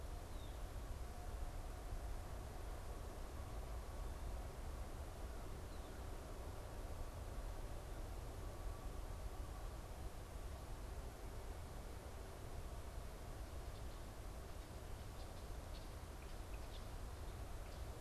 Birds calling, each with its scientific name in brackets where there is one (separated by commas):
Red-winged Blackbird (Agelaius phoeniceus)